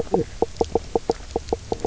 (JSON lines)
{"label": "biophony, knock croak", "recorder": "SoundTrap 300"}